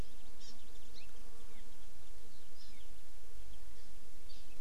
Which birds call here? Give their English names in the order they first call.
Hawaii Amakihi